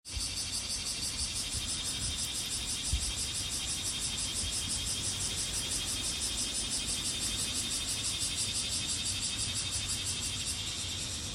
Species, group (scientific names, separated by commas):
Cryptotympana facialis, Cicadidae